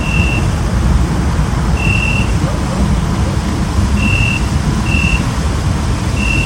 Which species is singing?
Oecanthus pellucens